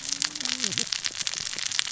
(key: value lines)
label: biophony, cascading saw
recorder: SoundTrap 600 or HydroMoth